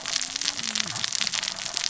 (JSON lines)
{"label": "biophony, cascading saw", "recorder": "SoundTrap 600 or HydroMoth"}